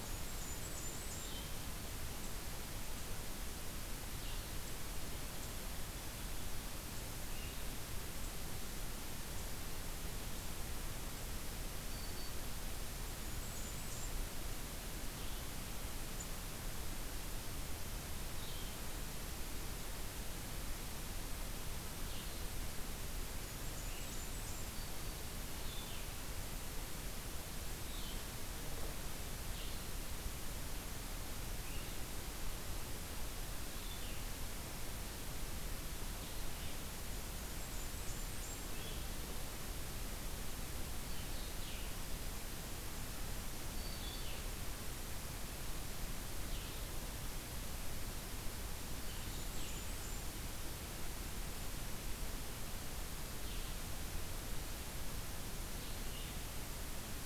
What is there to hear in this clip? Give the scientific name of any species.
Setophaga fusca, Vireo solitarius, Setophaga virens